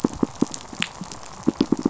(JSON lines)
{"label": "biophony", "recorder": "SoundTrap 500"}